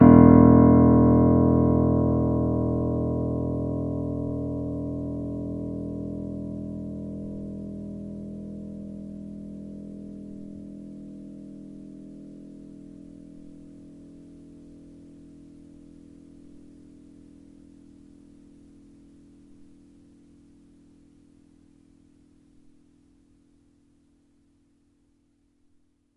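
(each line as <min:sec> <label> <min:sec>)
0:00.0 A piano key is pressed. 0:12.6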